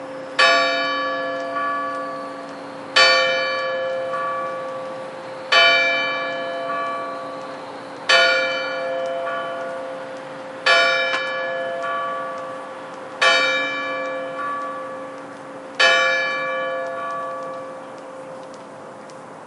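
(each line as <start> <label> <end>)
0.4 Church bells ringing repeatedly. 19.5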